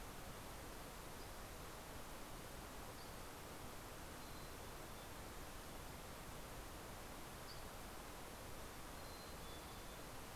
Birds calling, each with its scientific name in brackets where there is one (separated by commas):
Mountain Chickadee (Poecile gambeli), Dusky Flycatcher (Empidonax oberholseri)